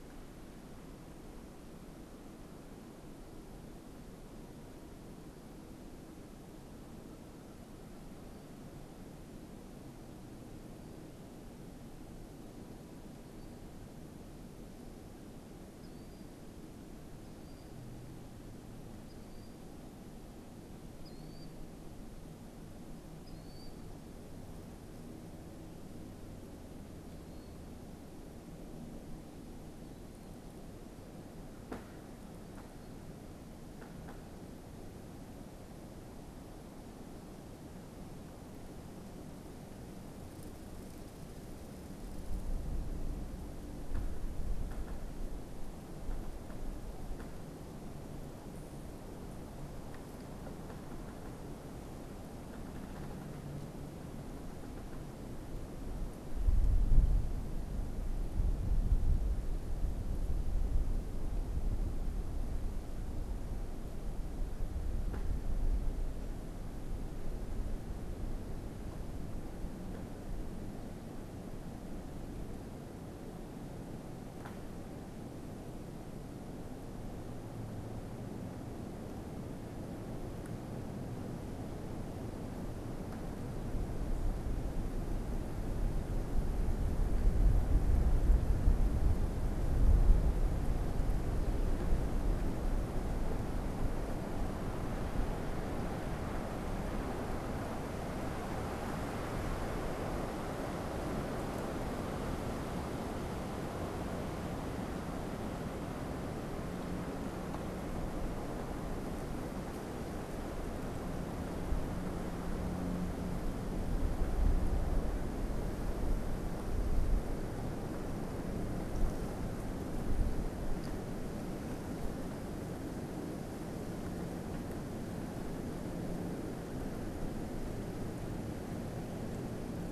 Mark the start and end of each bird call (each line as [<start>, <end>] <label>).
[15.56, 27.76] Killdeer (Charadrius vociferus)